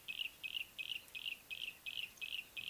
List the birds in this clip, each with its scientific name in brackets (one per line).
Yellow-breasted Apalis (Apalis flavida)